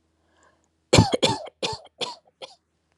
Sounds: Cough